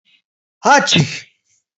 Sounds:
Sneeze